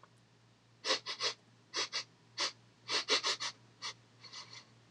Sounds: Sniff